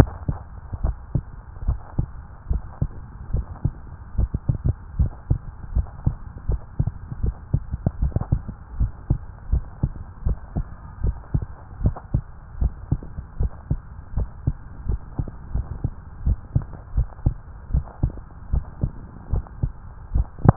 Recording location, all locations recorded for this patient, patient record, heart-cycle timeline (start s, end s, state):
tricuspid valve (TV)
aortic valve (AV)+pulmonary valve (PV)+tricuspid valve (TV)+mitral valve (MV)
#Age: Adolescent
#Sex: Male
#Height: 171.0 cm
#Weight: 50.2 kg
#Pregnancy status: False
#Murmur: Absent
#Murmur locations: nan
#Most audible location: nan
#Systolic murmur timing: nan
#Systolic murmur shape: nan
#Systolic murmur grading: nan
#Systolic murmur pitch: nan
#Systolic murmur quality: nan
#Diastolic murmur timing: nan
#Diastolic murmur shape: nan
#Diastolic murmur grading: nan
#Diastolic murmur pitch: nan
#Diastolic murmur quality: nan
#Outcome: Normal
#Campaign: 2015 screening campaign
0.00	4.94	unannotated
4.94	5.12	S1
5.12	5.28	systole
5.28	5.42	S2
5.42	5.72	diastole
5.72	5.86	S1
5.86	6.04	systole
6.04	6.14	S2
6.14	6.46	diastole
6.46	6.60	S1
6.60	6.76	systole
6.76	6.88	S2
6.88	7.20	diastole
7.20	7.36	S1
7.36	7.52	systole
7.52	7.64	S2
7.64	8.00	diastole
8.00	8.14	S1
8.14	8.30	systole
8.30	8.42	S2
8.42	8.78	diastole
8.78	8.92	S1
8.92	9.08	systole
9.08	9.18	S2
9.18	9.50	diastole
9.50	9.64	S1
9.64	9.82	systole
9.82	9.92	S2
9.92	10.24	diastole
10.24	10.38	S1
10.38	10.56	systole
10.56	10.68	S2
10.68	11.02	diastole
11.02	11.16	S1
11.16	11.30	systole
11.30	11.44	S2
11.44	11.82	diastole
11.82	11.96	S1
11.96	12.12	systole
12.12	12.24	S2
12.24	12.60	diastole
12.60	12.74	S1
12.74	12.90	systole
12.90	13.00	S2
13.00	13.38	diastole
13.38	13.52	S1
13.52	13.70	systole
13.70	13.82	S2
13.82	14.16	diastole
14.16	14.30	S1
14.30	14.46	systole
14.46	14.56	S2
14.56	14.88	diastole
14.88	15.00	S1
15.00	15.14	systole
15.14	15.26	S2
15.26	15.56	diastole
15.56	15.68	S1
15.68	15.82	systole
15.82	15.92	S2
15.92	16.24	diastole
16.24	16.40	S1
16.40	16.54	systole
16.54	16.64	S2
16.64	16.94	diastole
16.94	17.08	S1
17.08	17.24	systole
17.24	17.38	S2
17.38	17.72	diastole
17.72	17.86	S1
17.86	18.02	systole
18.02	18.12	S2
18.12	18.48	diastole
18.48	18.66	S1
18.66	18.82	systole
18.82	18.92	S2
18.92	19.32	diastole
19.32	19.46	S1
19.46	19.62	systole
19.62	19.72	S2
19.72	20.10	diastole
20.10	20.26	S1
20.26	20.56	unannotated